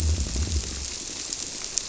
{"label": "biophony", "recorder": "SoundTrap 300"}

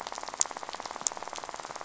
{"label": "biophony, rattle", "recorder": "SoundTrap 500"}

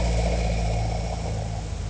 {"label": "anthrophony, boat engine", "recorder": "HydroMoth"}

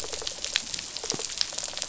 {"label": "biophony, rattle response", "recorder": "SoundTrap 500"}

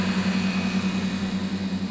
{"label": "anthrophony, boat engine", "recorder": "SoundTrap 500"}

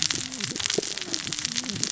{"label": "biophony, cascading saw", "recorder": "SoundTrap 600 or HydroMoth"}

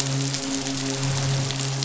{"label": "biophony, midshipman", "recorder": "SoundTrap 500"}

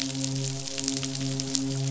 {"label": "biophony, midshipman", "recorder": "SoundTrap 500"}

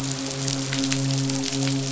{"label": "biophony, midshipman", "recorder": "SoundTrap 500"}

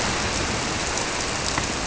{"label": "biophony", "recorder": "SoundTrap 300"}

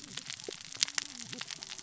{"label": "biophony, cascading saw", "recorder": "SoundTrap 600 or HydroMoth"}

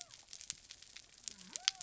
{"label": "biophony", "recorder": "SoundTrap 300"}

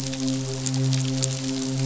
{"label": "biophony, midshipman", "recorder": "SoundTrap 500"}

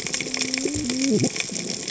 {"label": "biophony, cascading saw", "recorder": "HydroMoth"}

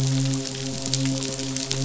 {"label": "biophony, midshipman", "recorder": "SoundTrap 500"}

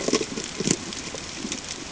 {"label": "ambient", "recorder": "HydroMoth"}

